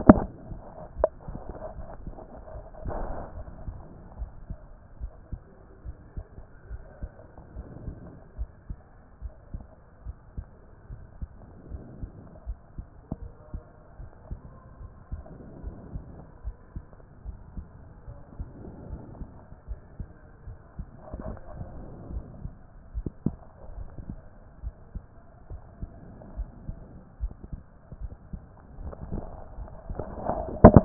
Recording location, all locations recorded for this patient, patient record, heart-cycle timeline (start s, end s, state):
aortic valve (AV)
aortic valve (AV)+pulmonary valve (PV)+tricuspid valve (TV)+mitral valve (MV)
#Age: nan
#Sex: Female
#Height: nan
#Weight: nan
#Pregnancy status: True
#Murmur: Absent
#Murmur locations: nan
#Most audible location: nan
#Systolic murmur timing: nan
#Systolic murmur shape: nan
#Systolic murmur grading: nan
#Systolic murmur pitch: nan
#Systolic murmur quality: nan
#Diastolic murmur timing: nan
#Diastolic murmur shape: nan
#Diastolic murmur grading: nan
#Diastolic murmur pitch: nan
#Diastolic murmur quality: nan
#Outcome: Normal
#Campaign: 2014 screening campaign
0.00	3.24	unannotated
3.24	3.36	diastole
3.36	3.50	S1
3.50	3.66	systole
3.66	3.76	S2
3.76	4.18	diastole
4.18	4.30	S1
4.30	4.48	systole
4.48	4.58	S2
4.58	5.00	diastole
5.00	5.12	S1
5.12	5.32	systole
5.32	5.40	S2
5.40	5.86	diastole
5.86	5.96	S1
5.96	6.16	systole
6.16	6.26	S2
6.26	6.70	diastole
6.70	6.82	S1
6.82	7.02	systole
7.02	7.10	S2
7.10	7.56	diastole
7.56	7.66	S1
7.66	7.84	systole
7.84	7.94	S2
7.94	8.38	diastole
8.38	8.50	S1
8.50	8.68	systole
8.68	8.78	S2
8.78	9.22	diastole
9.22	9.34	S1
9.34	9.52	systole
9.52	9.62	S2
9.62	10.06	diastole
10.06	10.16	S1
10.16	10.36	systole
10.36	10.46	S2
10.46	10.90	diastole
10.90	11.02	S1
11.02	11.20	systole
11.20	11.30	S2
11.30	11.70	diastole
11.70	11.82	S1
11.82	12.00	systole
12.00	12.10	S2
12.10	12.46	diastole
12.46	12.58	S1
12.58	12.76	systole
12.76	12.86	S2
12.86	13.20	diastole
13.20	13.32	S1
13.32	13.52	systole
13.52	13.62	S2
13.62	14.00	diastole
14.00	14.10	S1
14.10	14.28	systole
14.28	14.38	S2
14.38	14.80	diastole
14.80	14.92	S1
14.92	15.12	systole
15.12	15.22	S2
15.22	15.64	diastole
15.64	15.76	S1
15.76	15.94	systole
15.94	16.04	S2
16.04	16.44	diastole
16.44	16.56	S1
16.56	16.74	systole
16.74	16.84	S2
16.84	17.26	diastole
17.26	17.36	S1
17.36	17.56	systole
17.56	17.66	S2
17.66	18.08	diastole
18.08	18.20	S1
18.20	18.38	systole
18.38	18.48	S2
18.48	18.90	diastole
18.90	19.02	S1
19.02	19.18	systole
19.18	19.28	S2
19.28	19.68	diastole
19.68	19.80	S1
19.80	19.98	systole
19.98	20.08	S2
20.08	20.46	diastole
20.46	20.58	S1
20.58	20.78	systole
20.78	20.86	S2
20.86	21.24	diastole
21.24	21.36	S1
21.36	21.54	systole
21.54	21.64	S2
21.64	22.12	diastole
22.12	22.24	S1
22.24	22.42	systole
22.42	22.52	S2
22.52	22.96	diastole
22.96	30.85	unannotated